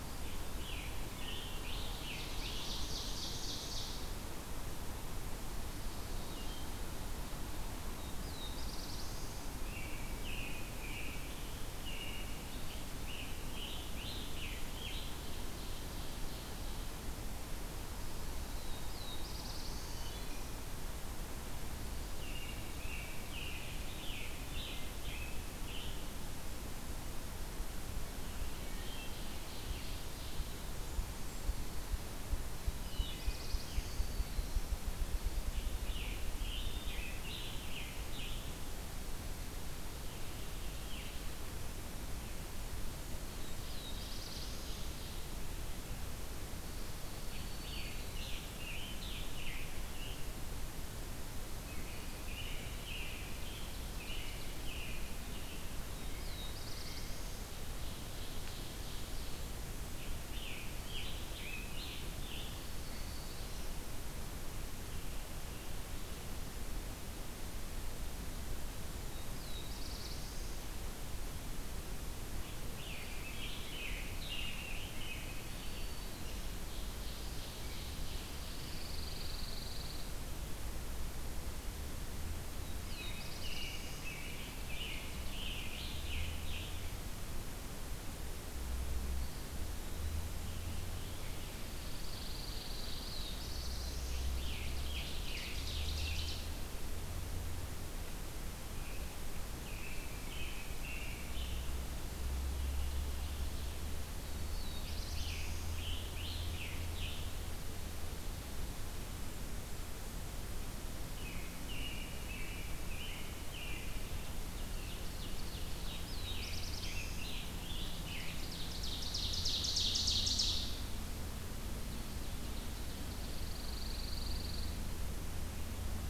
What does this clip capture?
Scarlet Tanager, Ovenbird, Black-throated Blue Warbler, American Robin, Wood Thrush, Ruffed Grouse, Black-throated Green Warbler, Blue Jay, Pine Warbler